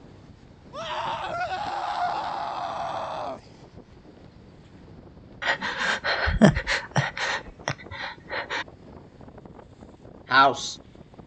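At the start, someone screams. After that, about 5 seconds in, breathing can be heard. Finally, about 10 seconds in, a voice says "house."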